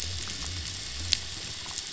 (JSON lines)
{"label": "biophony", "recorder": "SoundTrap 500"}